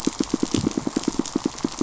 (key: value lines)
label: biophony, pulse
recorder: SoundTrap 500